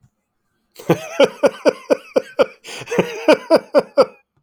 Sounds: Laughter